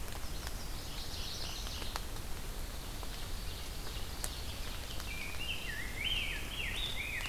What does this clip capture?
Chestnut-sided Warbler, Black-throated Blue Warbler, Mourning Warbler, Pine Warbler, Ovenbird, Rose-breasted Grosbeak